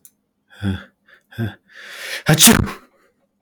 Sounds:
Sneeze